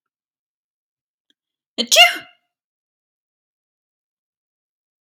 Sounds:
Sneeze